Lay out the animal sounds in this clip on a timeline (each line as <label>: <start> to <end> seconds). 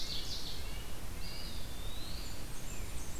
Ovenbird (Seiurus aurocapilla): 0.0 to 0.9 seconds
Red-breasted Nuthatch (Sitta canadensis): 0.0 to 1.6 seconds
Eastern Wood-Pewee (Contopus virens): 1.0 to 2.5 seconds
Blackburnian Warbler (Setophaga fusca): 2.0 to 3.2 seconds